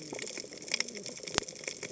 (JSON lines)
{"label": "biophony, cascading saw", "recorder": "HydroMoth"}